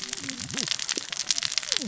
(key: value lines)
label: biophony, cascading saw
recorder: SoundTrap 600 or HydroMoth